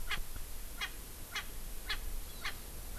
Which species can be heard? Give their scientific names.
Pternistis erckelii